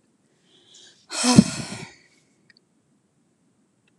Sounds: Sigh